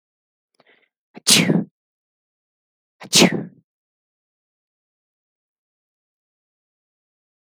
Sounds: Sneeze